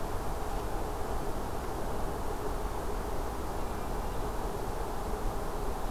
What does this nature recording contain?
Hermit Thrush